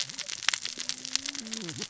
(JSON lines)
{"label": "biophony, cascading saw", "recorder": "SoundTrap 600 or HydroMoth"}